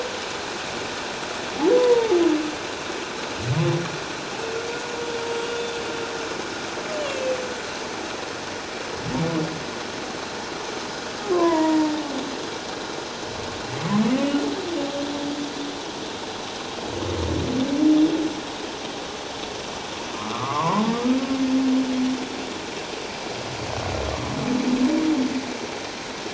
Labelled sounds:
1.8	2.2	humpback whale, 0.81 to 1.0 kHz
5.5	5.7	humpback whale, 3.5 to 3.6 kHz
7.0	7.4	humpback whale, 2.5 to 3.0 kHz
11.3	11.9	humpback whale, 0.88 to 7.0 kHz
20.2	20.8	humpback whale, 0.81 to 1.4 kHz

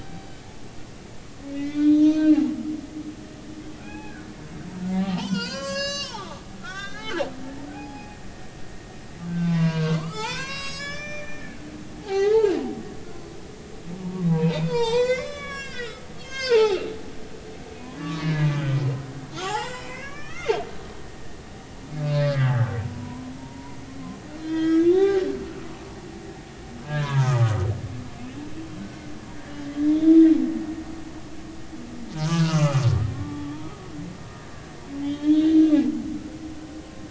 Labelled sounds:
1.5	2.4	humpback whale, 1.9 to 6.3 kHz
3.8	4.3	humpback whale, 0.80 to 2.6 kHz
4.9	7.2	humpback whale, 0.80 to 8.0 kHz
7.7	8.2	humpback whale, 0.80 to 5.1 kHz
9.3	11.6	humpback whale, 0.80 to 7.8 kHz
12.0	12.5	humpback whale, 0.80 to 4.1 kHz
14.0	16.9	humpback whale, 0.80 to 8.0 kHz
18.0	18.6	humpback whale, 1.1 to 4.2 kHz
19.4	20.6	humpback whale, 0.80 to 7.6 kHz
22.0	25.8	humpback whale, 0.86 to 5.4 kHz
26.8	27.5	humpback whale, 0.86 to 1.8 kHz
29.8	30.3	humpback whale, 3.3 to 3.7 kHz
32.2	33.5	humpback whale, 0.83 to 6.4 kHz
35.0	35.7	humpback whale, 2.8 to 4.0 kHz

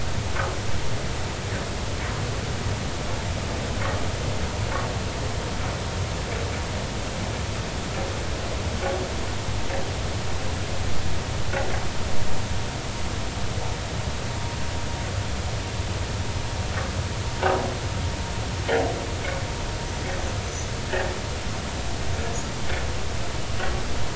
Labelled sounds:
20.4	20.7	vessel noise, 5.9 to 6.3 kHz

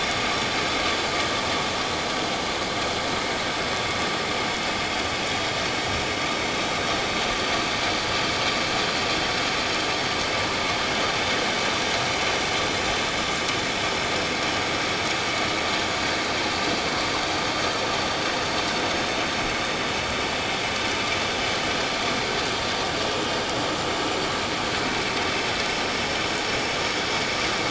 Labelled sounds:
7.3	7.6	vessel noise, 4.5 to 4.8 kHz

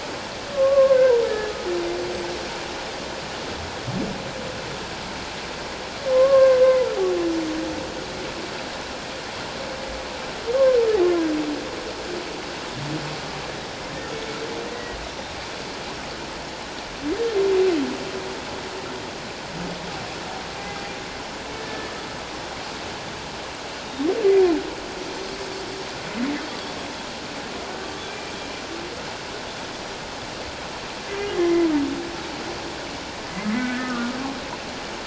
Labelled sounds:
0.5	1.5	humpback whale, 1.0 to 1.8 kHz
6.0	6.6	humpback whale, 1.0 to 1.7 kHz
11.1	11.3	humpback whale, 1.5 to 1.8 kHz
14.7	15.0	humpback whale, 1.8 to 2.0 kHz
21.6	21.9	humpback whale, 1.7 to 1.9 kHz
23.8	24.1	Pacific white-sided dolphin, 3.6 to 3.8 kHz
28.0	28.3	humpback whale, 2.3 to 2.4 kHz
31.4	31.7	humpback whale, 2.0 to 2.1 kHz
33.5	34.2	humpback whale, 1.1 to 2.1 kHz

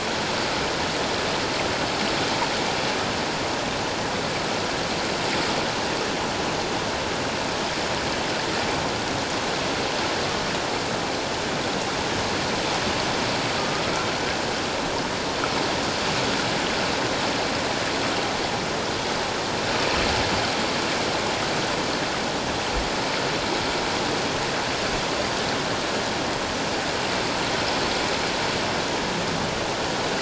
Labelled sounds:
13.6	13.8	killer whale, 1.1 to 1.3 kHz

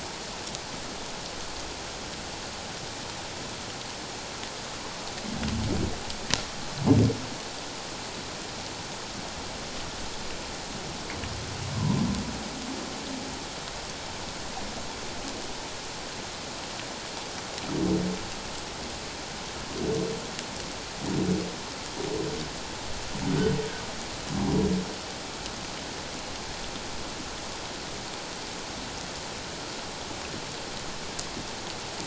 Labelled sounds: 11.7	12.0	humpback whale, 0.91 to 1.1 kHz

